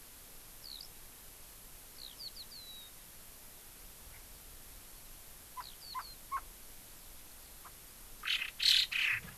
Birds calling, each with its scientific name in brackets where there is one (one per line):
Eurasian Skylark (Alauda arvensis)
Chinese Hwamei (Garrulax canorus)